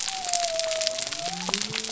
{"label": "biophony", "recorder": "SoundTrap 300"}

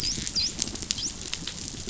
{"label": "biophony, dolphin", "recorder": "SoundTrap 500"}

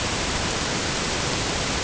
{"label": "ambient", "recorder": "HydroMoth"}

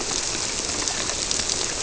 {"label": "biophony", "recorder": "SoundTrap 300"}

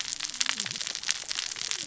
{"label": "biophony, cascading saw", "recorder": "SoundTrap 600 or HydroMoth"}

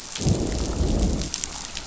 {"label": "biophony, growl", "recorder": "SoundTrap 500"}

